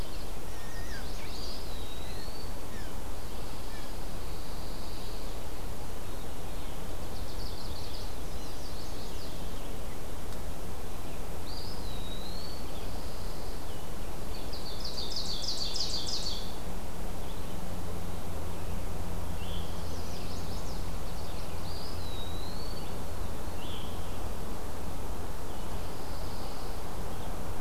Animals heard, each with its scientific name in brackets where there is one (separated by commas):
Pine Warbler (Setophaga pinus), Veery (Catharus fuscescens), Chestnut-sided Warbler (Setophaga pensylvanica), Blue Jay (Cyanocitta cristata), Ovenbird (Seiurus aurocapilla), Chimney Swift (Chaetura pelagica), Eastern Wood-Pewee (Contopus virens)